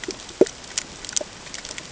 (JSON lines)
{"label": "ambient", "recorder": "HydroMoth"}